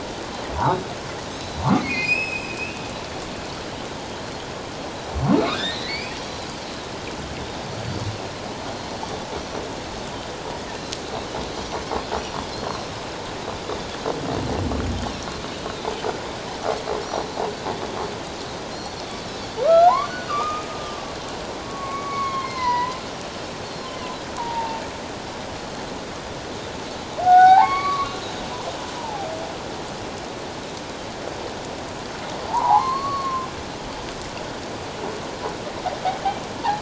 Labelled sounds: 0.6	1.6	Pacific white-sided dolphin, 3.8 to 4.0 kHz
1.8	2.8	humpback whale, 2.0 to 7.8 kHz
5.3	6.4	humpback whale, 1.1 to 5.9 kHz
12.5	12.9	Pacific white-sided dolphin, 4.0 to 4.4 kHz
17.0	17.3	Pacific white-sided dolphin, 4.3 to 4.4 kHz
18.7	19.0	Pacific white-sided dolphin, 4.1 to 5.9 kHz
19.6	20.7	humpback whale, 0.78 to 4.6 kHz
20.0	20.4	Pacific white-sided dolphin, 1.4 to 1.6 kHz
21.6	23.0	humpback whale, 0.88 to 5.2 kHz
23.6	23.9	Pacific white-sided dolphin, 4.1 to 4.5 kHz
23.9	24.8	humpback whale, 0.81 to 3.2 kHz
25.5	25.8	Pacific white-sided dolphin, 4.2 to 4.5 kHz
27.2	28.1	humpback whale, 0.78 to 4.8 kHz
27.8	28.1	Pacific white-sided dolphin, 3.8 to 4.1 kHz
29.0	29.3	humpback whale, 0.78 to 1.0 kHz
32.5	33.5	humpback whale, 0.78 to 4.5 kHz

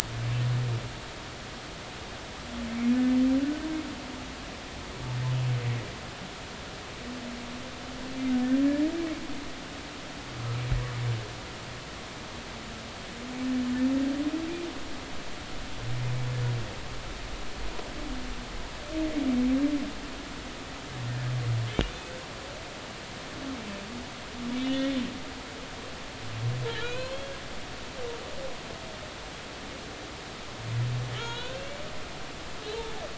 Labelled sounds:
2.9	3.2	humpback whale, 1.7 to 1.8 kHz
9.0	9.2	humpback whale, 2.1 to 2.4 kHz
21.9	22.2	humpback whale, 6.5 to 6.7 kHz
24.8	25.0	humpback whale, 2.1 to 2.3 kHz
26.8	27.3	humpback whale, 0.96 to 4.4 kHz
31.1	31.7	humpback whale, 1.3 to 4.0 kHz

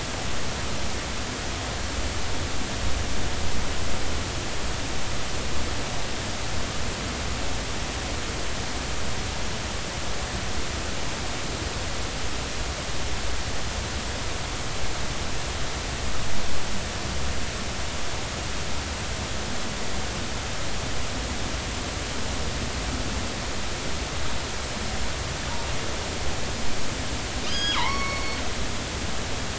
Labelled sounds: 27.5	28.4	killer whale, northern resident, G clan, call N23i, 0.83 to 5.1 kHz

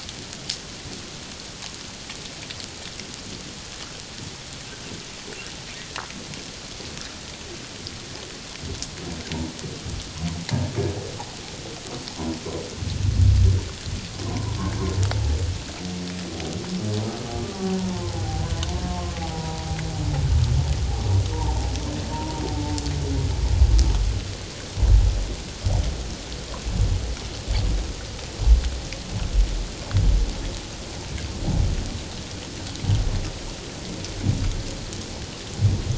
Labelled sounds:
18.1	18.5	humpback whale, 0.78 to 0.88 kHz
18.8	19.7	humpback whale, 0.91 to 1.1 kHz
21.3	22.4	humpback whale, 0.84 to 1.0 kHz

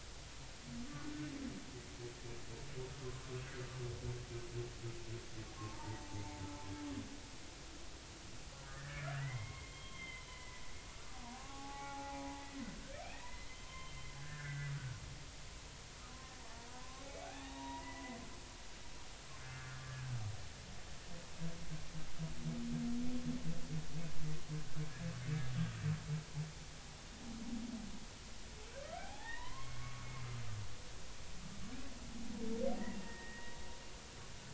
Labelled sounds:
5.6	6.1	humpback whale, 0.80 to 0.99 kHz
8.7	12.4	humpback whale, 0.80 to 3.3 kHz
13.0	15.0	humpback whale, 0.99 to 3.2 kHz
16.4	18.2	humpback whale, 0.80 to 2.3 kHz
19.4	20.1	humpback whale, 1.4 to 1.8 kHz
28.9	30.1	humpback whale, 0.80 to 2.5 kHz
33.0	33.6	humpback whale, 1.8 to 2.0 kHz

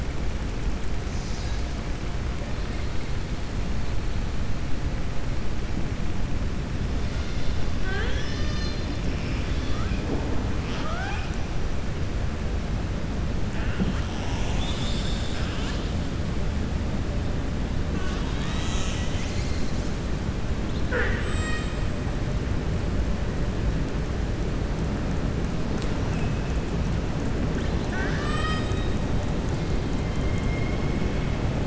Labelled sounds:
10.6	11.3	killer whale, southern resident, 0.65 to 5.8 kHz

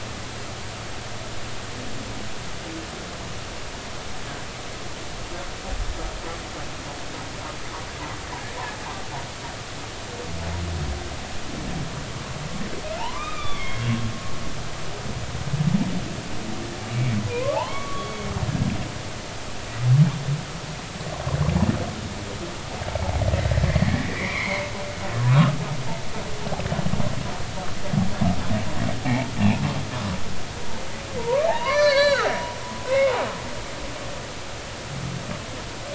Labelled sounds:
13.0	13.8	humpback whale, 0.83 to 4.8 kHz
16.9	18.3	humpback whale, 0.80 to 2.4 kHz
23.7	24.7	humpback whale, 0.90 to 2.5 kHz
25.2	25.6	humpback whale, 0.93 to 1.5 kHz
29.0	29.3	humpback whale, 0.80 to 0.96 kHz
31.2	32.3	humpback whale, 0.80 to 4.8 kHz
32.9	33.1	humpback whale, 0.99 to 2.8 kHz

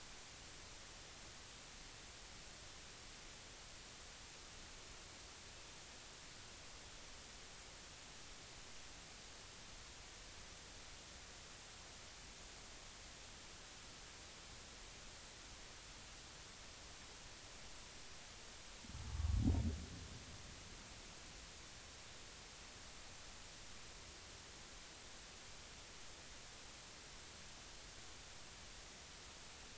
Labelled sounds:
19.1	19.4	humpback whale, 1.1 to 1.2 kHz

